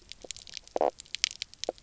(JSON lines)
{"label": "biophony, knock croak", "recorder": "SoundTrap 300"}